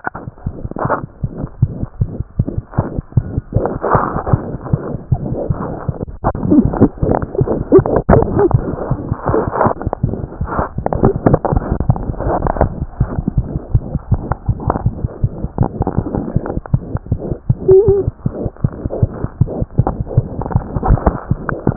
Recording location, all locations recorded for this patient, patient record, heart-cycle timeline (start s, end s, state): mitral valve (MV)
mitral valve (MV)
#Age: Infant
#Sex: Male
#Height: 42.0 cm
#Weight: 4.4 kg
#Pregnancy status: False
#Murmur: Present
#Murmur locations: mitral valve (MV)
#Most audible location: mitral valve (MV)
#Systolic murmur timing: Holosystolic
#Systolic murmur shape: Plateau
#Systolic murmur grading: I/VI
#Systolic murmur pitch: High
#Systolic murmur quality: Harsh
#Diastolic murmur timing: nan
#Diastolic murmur shape: nan
#Diastolic murmur grading: nan
#Diastolic murmur pitch: nan
#Diastolic murmur quality: nan
#Outcome: Abnormal
#Campaign: 2015 screening campaign
0.00	1.05	unannotated
1.05	1.18	diastole
1.18	1.31	S1
1.31	1.40	systole
1.40	1.48	S2
1.48	1.57	diastole
1.57	1.69	S1
1.69	1.78	systole
1.78	1.89	S2
1.89	1.96	diastole
1.96	2.09	S1
2.09	2.16	systole
2.16	2.27	S2
2.27	2.35	diastole
2.35	2.46	S1
2.46	2.52	systole
2.52	2.64	S2
2.64	2.74	diastole
2.74	2.85	S1
2.85	2.92	systole
2.92	3.04	S2
3.04	3.12	diastole
3.12	3.25	S1
3.25	3.32	systole
3.32	3.42	S2
3.42	3.50	diastole
3.50	3.64	S1
3.64	3.71	systole
3.71	3.81	S2
3.81	4.30	unannotated
4.30	4.40	S1
4.40	4.51	systole
4.51	4.60	S2
4.60	4.69	diastole
4.69	4.80	S1
4.80	4.91	systole
4.91	4.98	S2
4.98	5.09	diastole
5.09	5.19	S1
5.19	21.76	unannotated